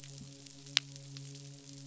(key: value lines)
label: biophony, midshipman
recorder: SoundTrap 500